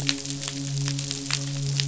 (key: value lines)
label: biophony, midshipman
recorder: SoundTrap 500